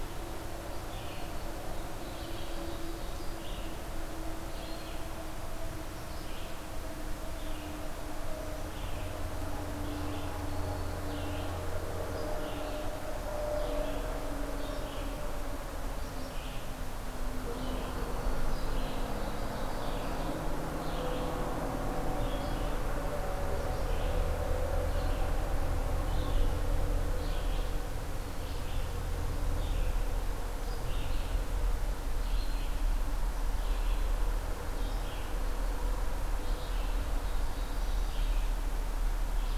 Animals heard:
Red-eyed Vireo (Vireo olivaceus), Ovenbird (Seiurus aurocapilla)

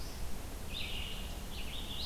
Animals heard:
Red-eyed Vireo (Vireo olivaceus)

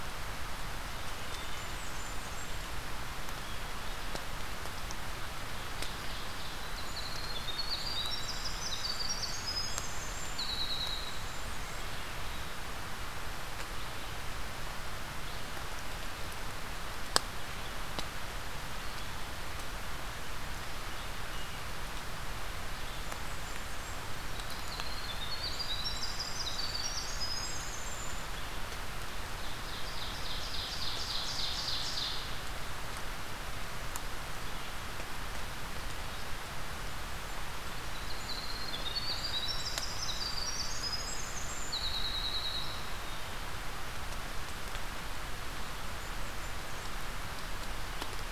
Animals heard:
Ovenbird (Seiurus aurocapilla), Blackburnian Warbler (Setophaga fusca), Winter Wren (Troglodytes hiemalis)

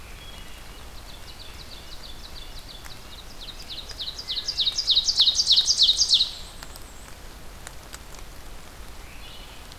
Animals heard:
Ovenbird (Seiurus aurocapilla), Red-breasted Nuthatch (Sitta canadensis), Black-and-white Warbler (Mniotilta varia), Wood Thrush (Hylocichla mustelina)

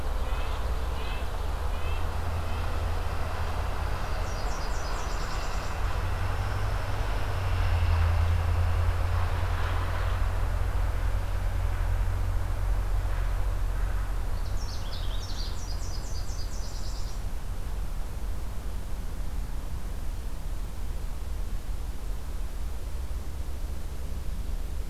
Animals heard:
Nashville Warbler (Leiothlypis ruficapilla), Canada Warbler (Cardellina canadensis), Red-breasted Nuthatch (Sitta canadensis)

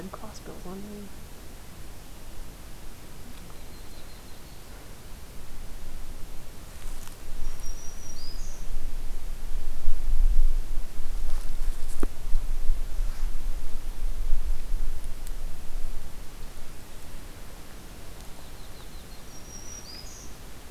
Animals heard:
Yellow-rumped Warbler (Setophaga coronata), Black-throated Green Warbler (Setophaga virens)

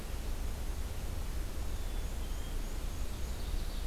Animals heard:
Black-and-white Warbler (Mniotilta varia), Ovenbird (Seiurus aurocapilla), Black-capped Chickadee (Poecile atricapillus)

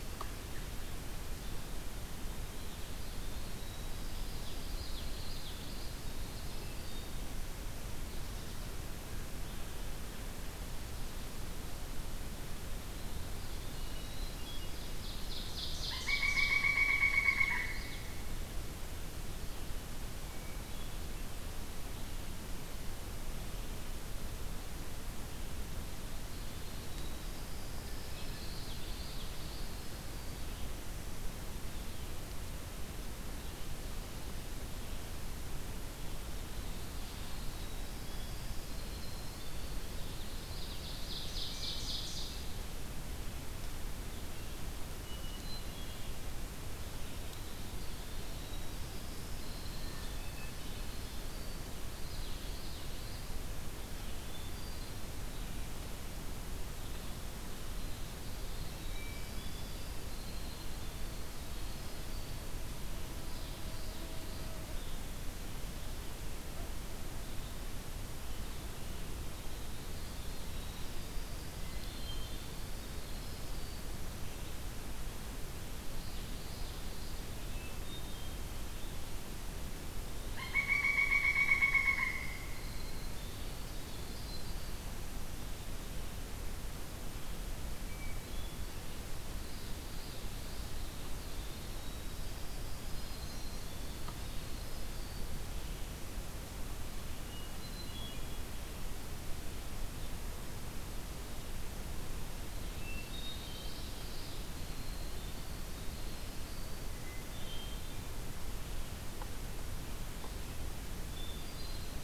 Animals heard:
Common Yellowthroat (Geothlypis trichas), Hermit Thrush (Catharus guttatus), Pileated Woodpecker (Dryocopus pileatus), Ovenbird (Seiurus aurocapilla), Winter Wren (Troglodytes hiemalis), Red-eyed Vireo (Vireo olivaceus)

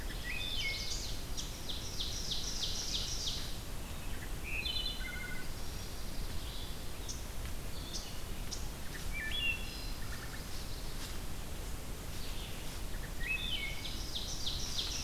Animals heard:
Ovenbird (Seiurus aurocapilla), Chestnut-sided Warbler (Setophaga pensylvanica), unidentified call, Wood Thrush (Hylocichla mustelina), Pine Warbler (Setophaga pinus), Red-eyed Vireo (Vireo olivaceus)

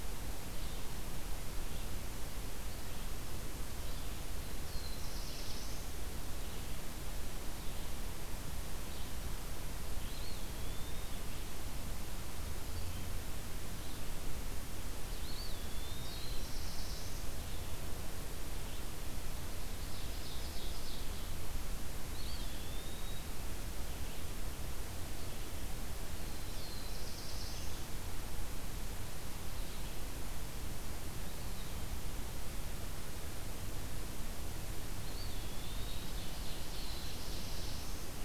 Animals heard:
Eastern Wood-Pewee (Contopus virens), Ovenbird (Seiurus aurocapilla), Red-eyed Vireo (Vireo olivaceus), Black-throated Blue Warbler (Setophaga caerulescens)

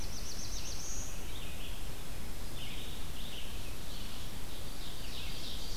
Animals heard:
Red-eyed Vireo (Vireo olivaceus), Ovenbird (Seiurus aurocapilla), Black-throated Blue Warbler (Setophaga caerulescens)

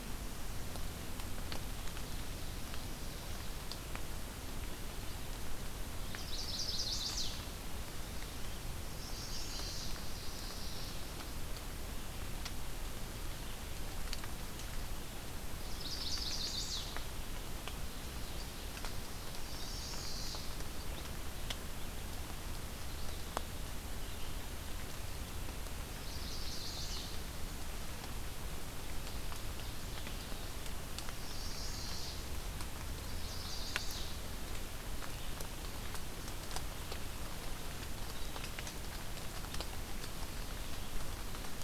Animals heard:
Chestnut-sided Warbler (Setophaga pensylvanica), Mourning Warbler (Geothlypis philadelphia)

